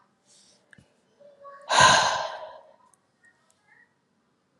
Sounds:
Sigh